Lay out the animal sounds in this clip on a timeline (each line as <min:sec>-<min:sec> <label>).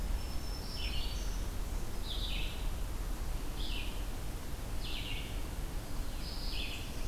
0:00.0-0:01.6 Black-throated Green Warbler (Setophaga virens)
0:00.0-0:07.1 Red-eyed Vireo (Vireo olivaceus)
0:05.6-0:07.1 Black-throated Blue Warbler (Setophaga caerulescens)